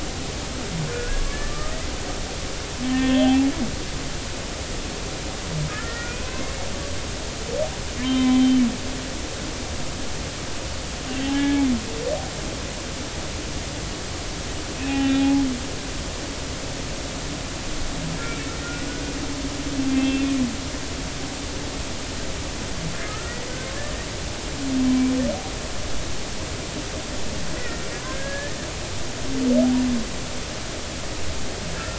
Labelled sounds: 1.0	1.7	humpback whale, 1.1 to 1.8 kHz
2.9	3.5	humpback whale, 0.80 to 3.5 kHz
5.7	6.5	humpback whale, 1.2 to 2.7 kHz
8.0	8.6	humpback whale, 0.99 to 3.2 kHz
11.3	11.6	humpback whale, 0.80 to 1.8 kHz
14.7	15.4	humpback whale, 0.80 to 2.8 kHz
18.2	19.1	humpback whale, 1.4 to 2.4 kHz
20.0	20.4	humpback whale, 2.4 to 3.6 kHz
23.0	23.4	humpback whale, 1.2 to 1.8 kHz
24.8	25.1	humpback whale, 2.3 to 2.4 kHz
27.6	28.6	humpback whale, 1.5 to 2.0 kHz

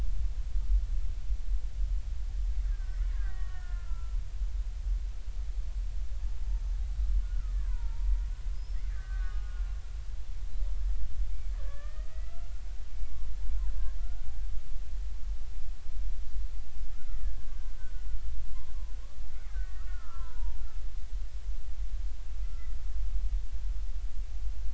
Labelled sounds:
2.6	4.2	killer whale, Bigg's (transient), 1.1 to 3.1 kHz
7.2	8.2	killer whale, Bigg's (transient), 0.83 to 1.8 kHz
8.6	9.7	killer whale, Bigg's (transient), 1.1 to 5.4 kHz
11.5	12.5	killer whale, Bigg's (transient), 1.1 to 2.7 kHz
13.7	14.3	killer whale, Bigg's (transient), 1.3 to 1.8 kHz
16.9	18.1	killer whale, Bigg's (transient), 1.2 to 1.6 kHz
19.5	20.6	killer whale, Bigg's (transient), 0.86 to 1.9 kHz

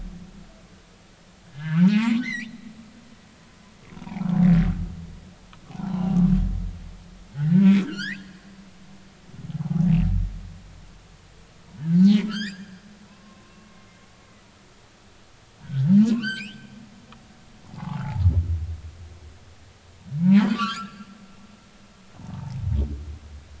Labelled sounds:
1.5	2.6	humpback whale, 0.80 to 2.9 kHz
3.9	4.2	humpback whale, 0.80 to 1.1 kHz
5.7	6.2	humpback whale, 0.80 to 1.2 kHz
7.3	8.3	humpback whale, 1.3 to 5.8 kHz
9.5	9.9	humpback whale, 0.80 to 1.0 kHz
12.0	12.7	humpback whale, 1.2 to 5.4 kHz
13.1	13.8	humpback whale, 0.93 to 1.2 kHz
15.6	16.7	humpback whale, 0.96 to 5.3 kHz
17.6	18.2	humpback whale, 0.80 to 1.3 kHz
20.5	21.0	humpback whale, 0.99 to 1.8 kHz
22.3	22.6	humpback whale, 0.80 to 0.96 kHz

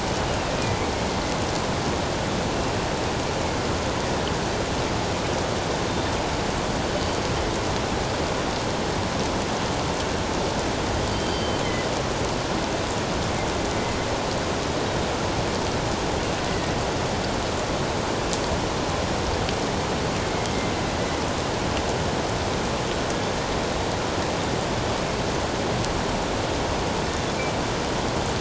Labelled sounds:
11.1	11.9	killer whale, northern resident, G clan, 1.9 to 4.7 kHz

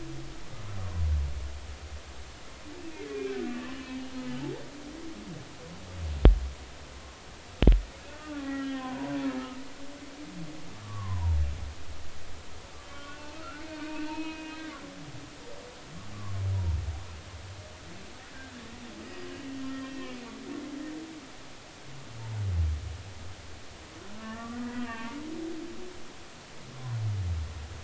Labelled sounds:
3.1	3.5	humpback whale, 1.4 to 2.5 kHz
8.2	9.2	humpback whale, 0.90 to 2.0 kHz
10.8	11.4	humpback whale, 0.86 to 1.2 kHz
12.8	14.7	humpback whale, 0.86 to 3.2 kHz
16.1	16.4	humpback whale, 0.99 to 1.2 kHz
19.1	20.1	humpback whale, 1.8 to 5.1 kHz
24.2	25.2	humpback whale, 0.86 to 2.9 kHz

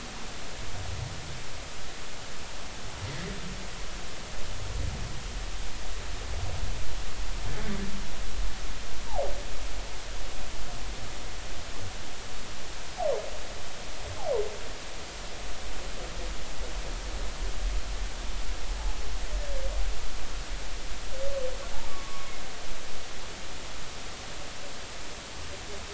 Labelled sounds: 21.9	22.4	humpback whale, 0.96 to 2.2 kHz

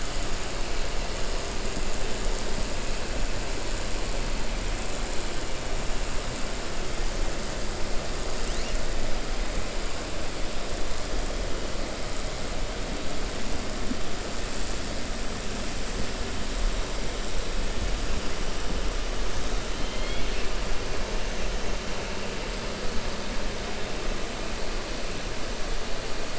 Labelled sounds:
19.7	20.5	killer whale, 2.1 to 4.4 kHz

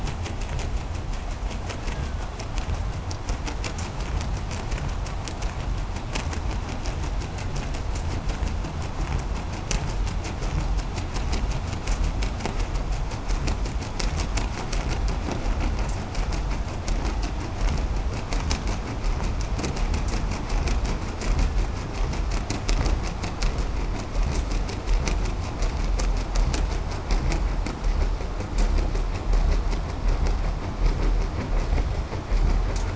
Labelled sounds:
1.4	2.8	killer whale, Bigg's (transient), 0.88 to 2.2 kHz

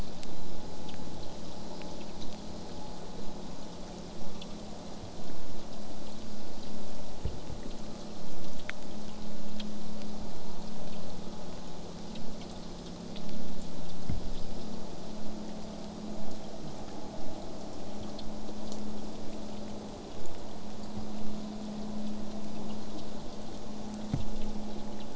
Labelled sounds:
20.1	25.1	vessel noise, 0 to 8.0 kHz

